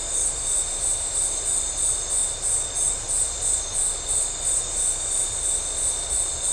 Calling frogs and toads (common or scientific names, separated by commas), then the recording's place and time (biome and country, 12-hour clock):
none
Atlantic Forest, Brazil, 8:15pm